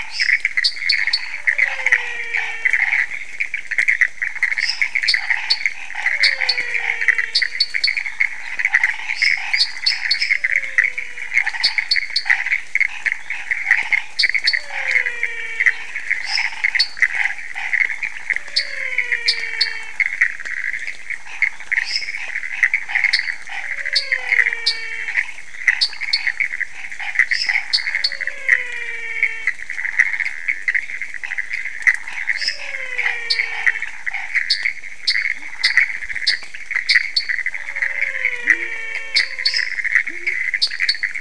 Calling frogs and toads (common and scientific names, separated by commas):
Pithecopus azureus, lesser tree frog (Dendropsophus minutus), dwarf tree frog (Dendropsophus nanus), menwig frog (Physalaemus albonotatus), Chaco tree frog (Boana raniceps), waxy monkey tree frog (Phyllomedusa sauvagii)